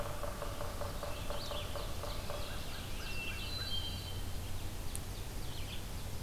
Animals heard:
Ovenbird (Seiurus aurocapilla), Red-eyed Vireo (Vireo olivaceus), Hermit Thrush (Catharus guttatus), Yellow-bellied Sapsucker (Sphyrapicus varius)

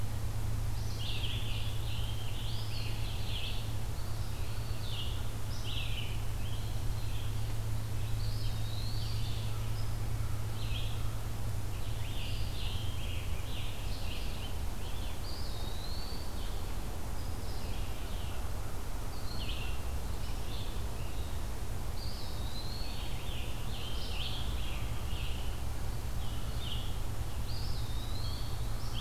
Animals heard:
Red-eyed Vireo (Vireo olivaceus), Scarlet Tanager (Piranga olivacea), American Crow (Corvus brachyrhynchos), Eastern Wood-Pewee (Contopus virens)

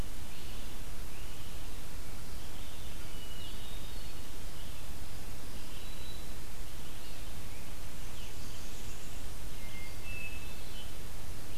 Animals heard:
Black-throated Green Warbler (Setophaga virens), Blackburnian Warbler (Setophaga fusca), Hermit Thrush (Catharus guttatus), Red-eyed Vireo (Vireo olivaceus), Great Crested Flycatcher (Myiarchus crinitus)

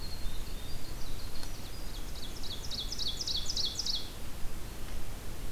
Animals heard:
Winter Wren (Troglodytes hiemalis), Ovenbird (Seiurus aurocapilla)

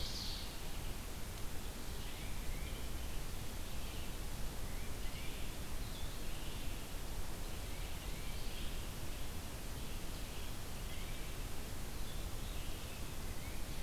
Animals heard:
Ovenbird (Seiurus aurocapilla), Tufted Titmouse (Baeolophus bicolor), Red-eyed Vireo (Vireo olivaceus)

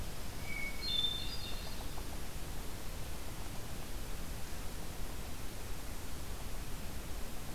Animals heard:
Hermit Thrush (Catharus guttatus)

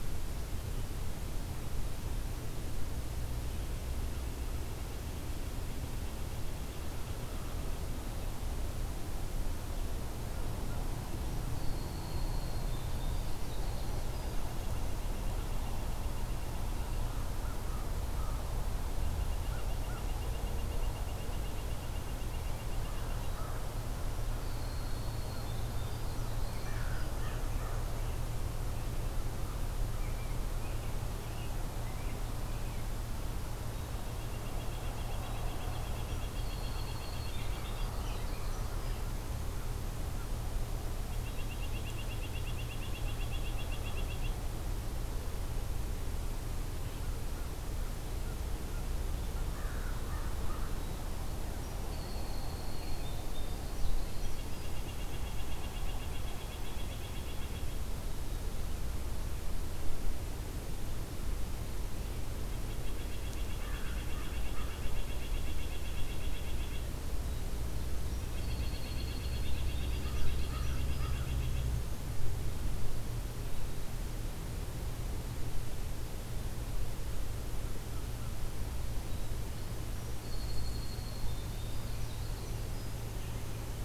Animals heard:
Winter Wren (Troglodytes hiemalis), American Crow (Corvus brachyrhynchos), American Robin (Turdus migratorius), Red-breasted Nuthatch (Sitta canadensis)

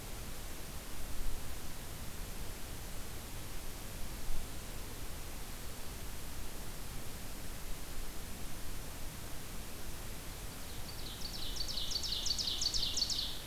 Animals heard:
Ovenbird (Seiurus aurocapilla)

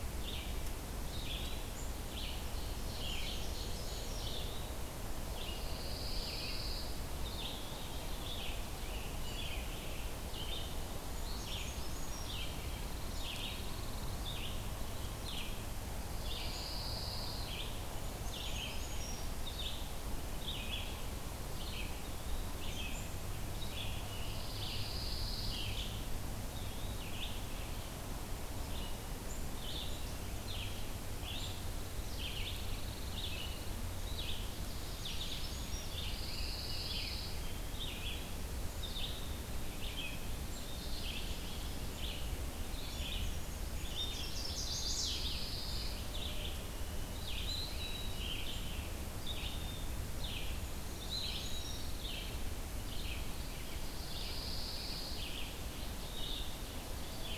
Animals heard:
Red-eyed Vireo (Vireo olivaceus), Pine Warbler (Setophaga pinus), Ovenbird (Seiurus aurocapilla), Eastern Wood-Pewee (Contopus virens), Chestnut-sided Warbler (Setophaga pensylvanica), Brown Creeper (Certhia americana), Rose-breasted Grosbeak (Pheucticus ludovicianus)

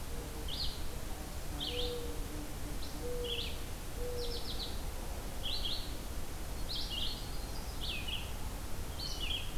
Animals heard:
Mourning Dove (Zenaida macroura), Yellow-rumped Warbler (Setophaga coronata), Blue Jay (Cyanocitta cristata), Red-eyed Vireo (Vireo olivaceus)

